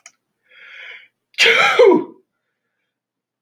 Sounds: Sneeze